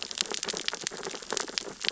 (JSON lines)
{"label": "biophony, sea urchins (Echinidae)", "recorder": "SoundTrap 600 or HydroMoth"}